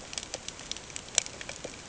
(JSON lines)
{"label": "ambient", "recorder": "HydroMoth"}